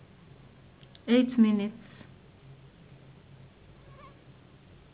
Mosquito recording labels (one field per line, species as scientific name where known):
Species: Anopheles gambiae s.s.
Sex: female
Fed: unfed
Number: one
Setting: insect culture